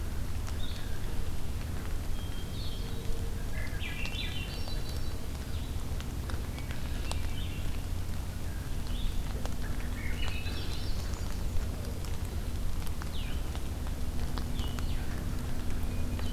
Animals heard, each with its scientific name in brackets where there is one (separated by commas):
Blue-headed Vireo (Vireo solitarius), Hermit Thrush (Catharus guttatus), Red-winged Blackbird (Agelaius phoeniceus), Swainson's Thrush (Catharus ustulatus)